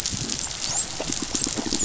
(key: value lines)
label: biophony, dolphin
recorder: SoundTrap 500